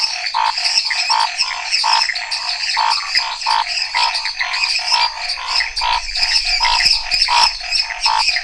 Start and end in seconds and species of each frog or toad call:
0.0	8.4	Boana raniceps
0.0	8.4	Dendropsophus minutus
0.0	8.4	Dendropsophus nanus
0.0	8.4	Pithecopus azureus
0.0	8.4	Scinax fuscovarius
4.4	6.3	Physalaemus albonotatus
Cerrado, Brazil, 9:00pm

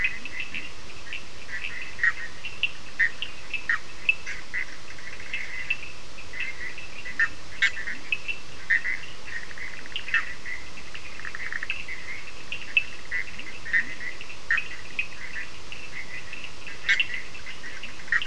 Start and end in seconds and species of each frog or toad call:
0.0	1.2	Leptodactylus latrans
0.0	18.2	Boana bischoffi
0.0	18.2	Sphaenorhynchus surdus
6.5	8.2	Leptodactylus latrans
13.3	14.7	Leptodactylus latrans
17.7	18.2	Leptodactylus latrans
Atlantic Forest, Brazil, 3:00am

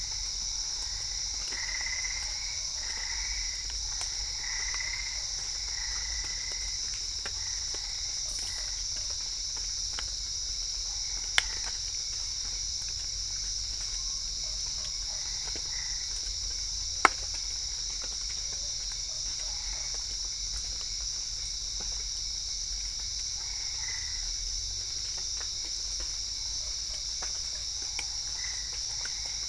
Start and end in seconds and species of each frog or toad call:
0.0	8.7	Boana albopunctata
8.1	9.2	Boana lundii
14.4	15.4	Boana lundii
19.0	20.0	Boana lundii
26.5	27.8	Boana lundii
Cerrado, Brazil, 8:30pm

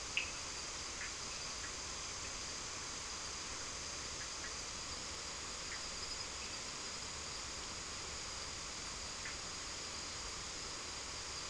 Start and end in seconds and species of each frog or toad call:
0.0	0.5	Sphaenorhynchus surdus
Atlantic Forest, Brazil, 9:15pm

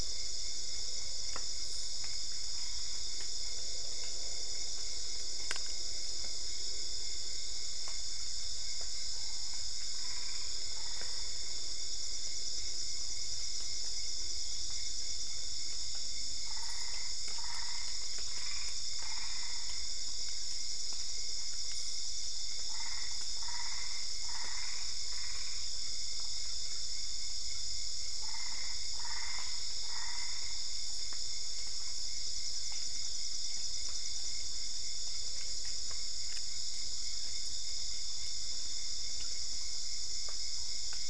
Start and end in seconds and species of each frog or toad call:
8.9	11.5	Boana albopunctata
16.3	19.9	Boana albopunctata
22.5	25.7	Boana albopunctata
28.3	30.7	Boana albopunctata
Cerrado, Brazil, 12:00am

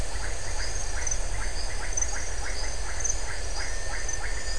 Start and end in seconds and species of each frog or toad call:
0.2	4.5	Leptodactylus notoaktites
Atlantic Forest, Brazil, 7:00pm

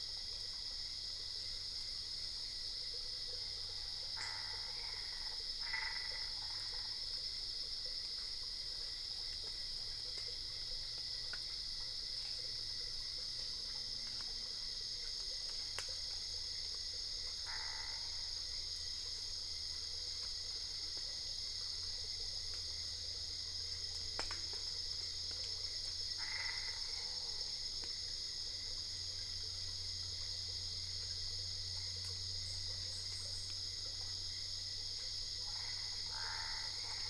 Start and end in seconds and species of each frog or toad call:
4.1	7.0	Boana albopunctata
17.0	18.4	Boana albopunctata
25.9	27.3	Boana albopunctata
35.8	37.0	Boana albopunctata
Cerrado, Brazil, 11:15pm

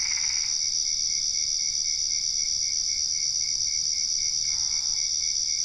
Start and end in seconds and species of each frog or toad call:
0.0	0.6	Boana albopunctata
4.5	5.0	Boana albopunctata
Cerrado, Brazil, 8:00pm

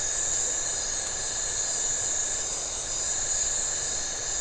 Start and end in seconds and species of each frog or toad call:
none
Atlantic Forest, Brazil, 8:15pm

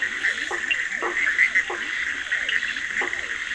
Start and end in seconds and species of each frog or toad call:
0.0	3.1	Boana bischoffi
0.0	3.5	Boana faber
0.0	3.5	Leptodactylus latrans
0.0	3.5	Physalaemus cuvieri
0.0	3.5	Scinax perereca
0.7	0.8	Sphaenorhynchus surdus
2.4	2.8	Sphaenorhynchus surdus
Atlantic Forest, Brazil, 10:30pm

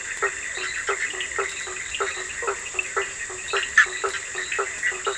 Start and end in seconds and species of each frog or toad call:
0.0	5.1	Boana bischoffi
0.0	5.1	Boana faber
0.0	5.1	Sphaenorhynchus surdus
0.4	5.1	Boana leptolineata
Atlantic Forest, Brazil, 10:30pm

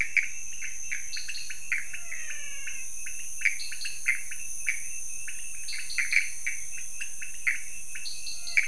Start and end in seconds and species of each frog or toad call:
0.0	8.6	Leptodactylus podicipinus
0.0	8.6	Pithecopus azureus
1.0	1.8	Dendropsophus nanus
1.8	3.1	Physalaemus albonotatus
3.4	4.2	Dendropsophus nanus
5.6	6.4	Dendropsophus nanus
8.0	8.6	Dendropsophus nanus
Cerrado, Brazil, 1:15am

